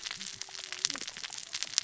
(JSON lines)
{"label": "biophony, cascading saw", "recorder": "SoundTrap 600 or HydroMoth"}